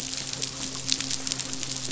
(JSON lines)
{"label": "biophony, midshipman", "recorder": "SoundTrap 500"}